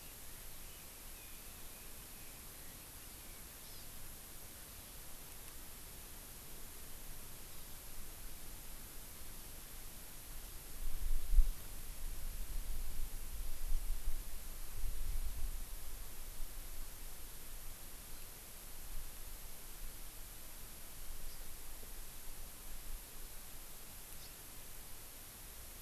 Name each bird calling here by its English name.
Hawaii Amakihi